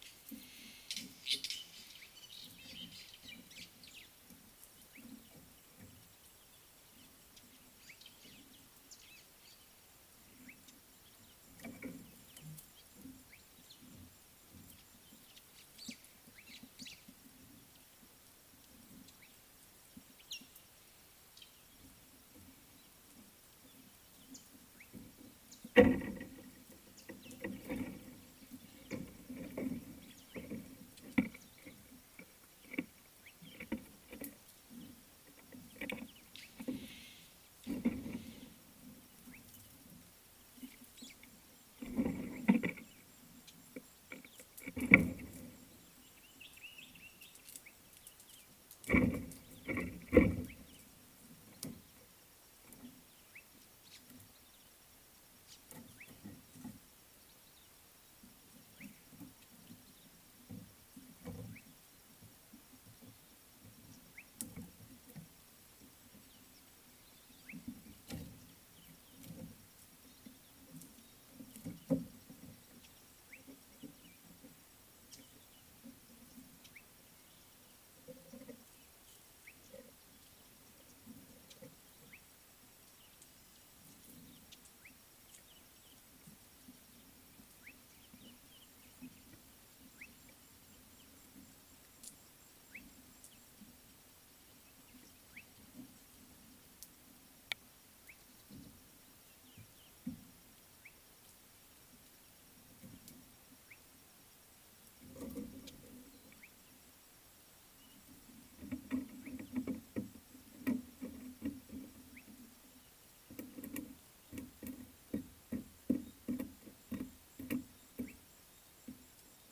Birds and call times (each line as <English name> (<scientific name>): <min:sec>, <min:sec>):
Slate-colored Boubou (Laniarius funebris): 0:01.3, 0:58.8, 1:07.5, 1:13.3, 1:19.5, 1:22.1, 1:30.0, 1:32.7
Fork-tailed Drongo (Dicrurus adsimilis): 0:02.7
White-browed Sparrow-Weaver (Plocepasser mahali): 0:03.9, 0:15.8, 0:41.1
Bristle-crowned Starling (Onychognathus salvadorii): 0:20.3
Common Bulbul (Pycnonotus barbatus): 0:46.8